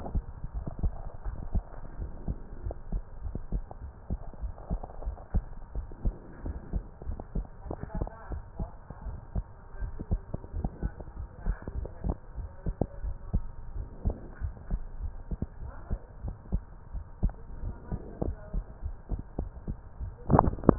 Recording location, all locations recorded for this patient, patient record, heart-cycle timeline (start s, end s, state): pulmonary valve (PV)
pulmonary valve (PV)+mitral valve (MV)
#Age: Adolescent
#Sex: Female
#Height: 147.0 cm
#Weight: 54.9 kg
#Pregnancy status: False
#Murmur: Absent
#Murmur locations: nan
#Most audible location: nan
#Systolic murmur timing: nan
#Systolic murmur shape: nan
#Systolic murmur grading: nan
#Systolic murmur pitch: nan
#Systolic murmur quality: nan
#Diastolic murmur timing: nan
#Diastolic murmur shape: nan
#Diastolic murmur grading: nan
#Diastolic murmur pitch: nan
#Diastolic murmur quality: nan
#Outcome: Normal
#Campaign: 2015 screening campaign
0.00	0.10	systole
0.10	0.24	S2
0.24	0.54	diastole
0.54	0.66	S1
0.66	0.82	systole
0.82	0.96	S2
0.96	1.24	diastole
1.24	1.38	S1
1.38	1.54	systole
1.54	1.68	S2
1.68	1.98	diastole
1.98	2.12	S1
2.12	2.28	systole
2.28	2.38	S2
2.38	2.62	diastole
2.62	2.76	S1
2.76	2.90	systole
2.90	3.02	S2
3.02	3.24	diastole
3.24	3.36	S1
3.36	3.52	systole
3.52	3.66	S2
3.66	3.84	diastole
3.84	3.92	S1
3.92	4.12	systole
4.12	4.22	S2
4.22	4.42	diastole
4.42	4.54	S1
4.54	4.72	systole
4.72	4.82	S2
4.82	5.04	diastole
5.04	5.18	S1
5.18	5.36	systole
5.36	5.48	S2
5.48	5.74	diastole
5.74	5.86	S1
5.86	6.04	systole
6.04	6.18	S2
6.18	6.44	diastole
6.44	6.60	S1
6.60	6.74	systole
6.74	6.84	S2
6.84	7.06	diastole
7.06	7.18	S1
7.18	7.34	systole
7.34	7.46	S2
7.46	7.68	diastole
7.68	7.80	S1
7.80	7.96	systole
7.96	8.10	S2
8.10	8.30	diastole
8.30	8.42	S1
8.42	8.60	systole
8.60	8.74	S2
8.74	9.04	diastole
9.04	9.18	S1
9.18	9.36	systole
9.36	9.48	S2
9.48	9.78	diastole
9.78	9.92	S1
9.92	10.10	systole
10.10	10.26	S2
10.26	10.54	diastole
10.54	10.66	S1
10.66	10.82	systole
10.82	10.94	S2
10.94	11.18	diastole
11.18	11.28	S1
11.28	11.44	systole
11.44	11.56	S2
11.56	11.76	diastole
11.76	11.90	S1
11.90	12.04	systole
12.04	12.18	S2
12.18	12.38	diastole
12.38	12.50	S1
12.50	12.66	systole
12.66	12.76	S2
12.76	13.02	diastole
13.02	13.16	S1
13.16	13.32	systole
13.32	13.48	S2
13.48	13.74	diastole
13.74	13.88	S1
13.88	14.06	systole
14.06	14.20	S2
14.20	14.42	diastole
14.42	14.54	S1
14.54	14.68	systole
14.68	14.82	S2
14.82	15.00	diastole
15.00	15.14	S1
15.14	15.30	systole
15.30	15.40	S2
15.40	15.62	diastole
15.62	15.72	S1
15.72	15.90	systole
15.90	16.00	S2
16.00	16.24	diastole
16.24	16.36	S1
16.36	16.50	systole
16.50	16.66	S2
16.66	16.94	diastole
16.94	17.04	S1
17.04	17.24	systole
17.24	17.38	S2
17.38	17.62	diastole
17.62	17.74	S1
17.74	17.92	systole
17.92	18.02	S2
18.02	18.22	diastole